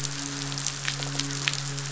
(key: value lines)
label: biophony, midshipman
recorder: SoundTrap 500

label: biophony
recorder: SoundTrap 500